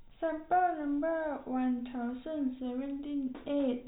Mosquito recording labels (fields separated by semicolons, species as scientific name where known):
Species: no mosquito; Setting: cup